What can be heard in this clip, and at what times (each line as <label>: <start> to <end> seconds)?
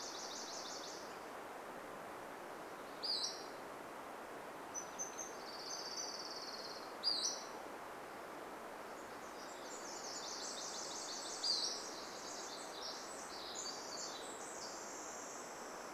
Nashville Warbler song: 0 to 2 seconds
Pacific-slope Flycatcher call: 2 to 4 seconds
Golden-crowned Kinglet call: 4 to 8 seconds
Orange-crowned Warbler song: 4 to 8 seconds
Pacific-slope Flycatcher call: 6 to 8 seconds
Nashville Warbler song: 8 to 12 seconds
Pacific Wren song: 8 to 16 seconds
Pacific-slope Flycatcher call: 10 to 12 seconds